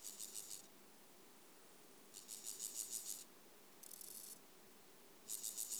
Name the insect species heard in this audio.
Chorthippus dorsatus